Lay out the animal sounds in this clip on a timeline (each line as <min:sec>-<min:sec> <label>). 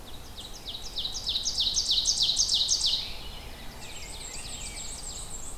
0:00.0-0:05.3 Ovenbird (Seiurus aurocapilla)
0:03.2-0:05.0 Rose-breasted Grosbeak (Pheucticus ludovicianus)
0:03.8-0:05.6 Black-and-white Warbler (Mniotilta varia)